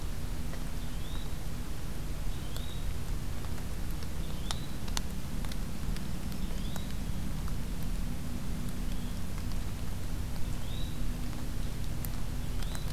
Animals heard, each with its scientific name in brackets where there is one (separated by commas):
Yellow-bellied Flycatcher (Empidonax flaviventris), Black-throated Green Warbler (Setophaga virens)